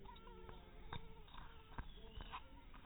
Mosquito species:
mosquito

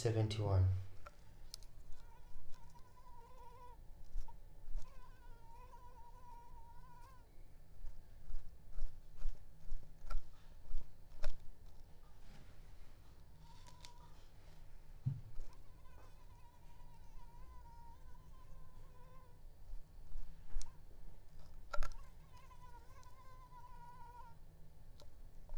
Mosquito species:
Anopheles arabiensis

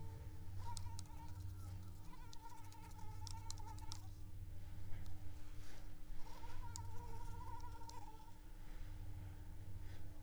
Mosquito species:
Anopheles arabiensis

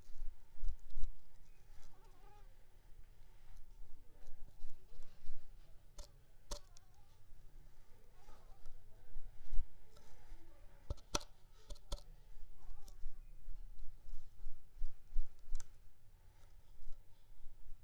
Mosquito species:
Anopheles squamosus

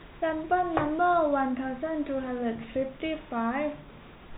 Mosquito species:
no mosquito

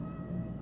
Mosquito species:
Aedes albopictus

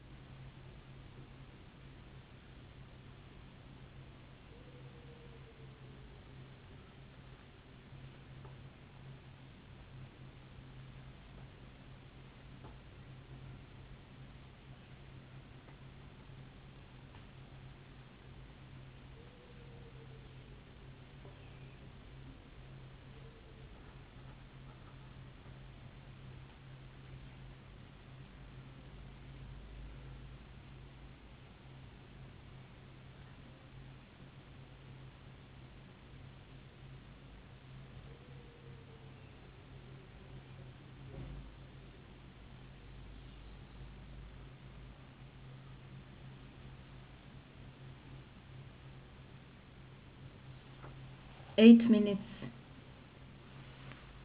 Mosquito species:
no mosquito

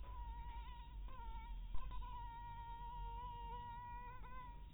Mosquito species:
mosquito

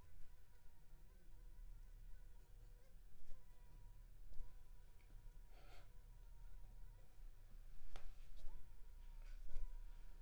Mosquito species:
Anopheles funestus s.s.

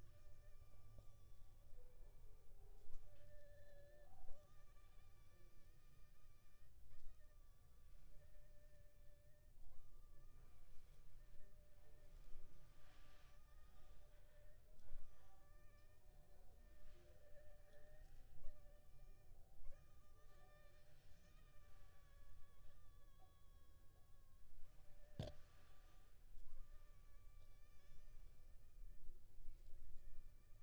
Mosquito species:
Anopheles funestus s.l.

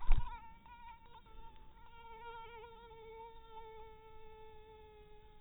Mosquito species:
mosquito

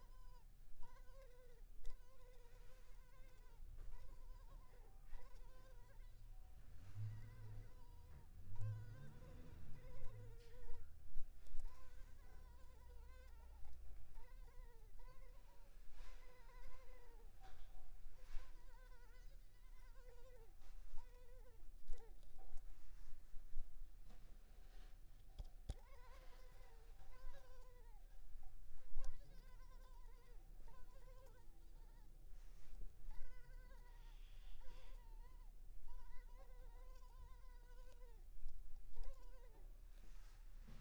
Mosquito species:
Culex pipiens complex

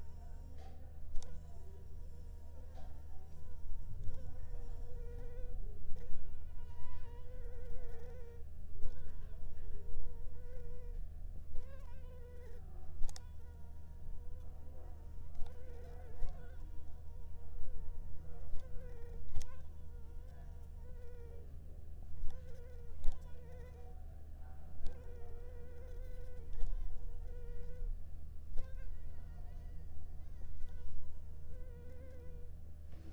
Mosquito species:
Anopheles arabiensis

